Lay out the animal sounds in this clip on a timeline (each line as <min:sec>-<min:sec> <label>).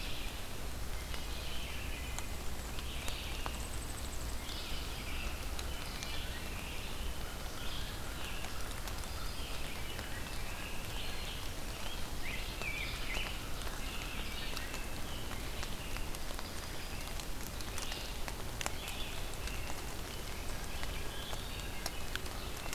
0:00.0-0:13.9 Red-eyed Vireo (Vireo olivaceus)
0:00.8-0:02.4 Wood Thrush (Hylocichla mustelina)
0:03.4-0:04.7 unidentified call
0:04.8-0:08.6 American Robin (Turdus migratorius)
0:06.7-0:08.8 American Crow (Corvus brachyrhynchos)
0:09.3-0:11.0 American Robin (Turdus migratorius)
0:11.6-0:13.4 Rose-breasted Grosbeak (Pheucticus ludovicianus)
0:13.8-0:16.2 American Robin (Turdus migratorius)
0:14.2-0:22.7 Red-eyed Vireo (Vireo olivaceus)
0:15.7-0:17.4 Yellow-rumped Warbler (Setophaga coronata)
0:18.7-0:21.7 American Robin (Turdus migratorius)
0:21.4-0:22.2 Wood Thrush (Hylocichla mustelina)